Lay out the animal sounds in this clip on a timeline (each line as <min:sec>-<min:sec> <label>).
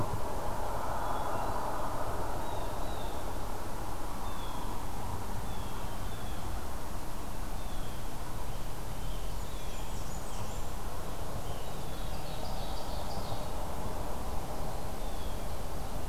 0:00.5-0:01.7 Hermit Thrush (Catharus guttatus)
0:02.4-0:03.4 Blue Jay (Cyanocitta cristata)
0:04.2-0:08.1 Blue Jay (Cyanocitta cristata)
0:08.3-0:10.8 Scarlet Tanager (Piranga olivacea)
0:09.3-0:10.8 Blackburnian Warbler (Setophaga fusca)
0:09.4-0:10.1 Blue Jay (Cyanocitta cristata)
0:11.4-0:13.6 Ovenbird (Seiurus aurocapilla)
0:11.5-0:12.1 Blue Jay (Cyanocitta cristata)
0:14.7-0:15.6 Blue Jay (Cyanocitta cristata)